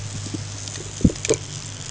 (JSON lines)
{"label": "ambient", "recorder": "HydroMoth"}